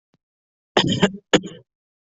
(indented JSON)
{
  "expert_labels": [
    {
      "quality": "poor",
      "cough_type": "dry",
      "dyspnea": false,
      "wheezing": false,
      "stridor": false,
      "choking": false,
      "congestion": false,
      "nothing": true,
      "diagnosis": "healthy cough",
      "severity": "pseudocough/healthy cough"
    }
  ],
  "gender": "female",
  "respiratory_condition": false,
  "fever_muscle_pain": false,
  "status": "healthy"
}